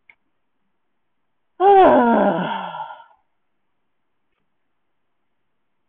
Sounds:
Sigh